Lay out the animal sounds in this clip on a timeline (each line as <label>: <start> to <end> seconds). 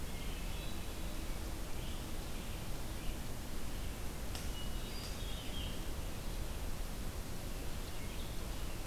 Hermit Thrush (Catharus guttatus): 0.0 to 1.1 seconds
Red-eyed Vireo (Vireo olivaceus): 1.3 to 8.9 seconds
Hermit Thrush (Catharus guttatus): 4.4 to 5.6 seconds